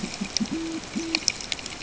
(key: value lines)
label: ambient
recorder: HydroMoth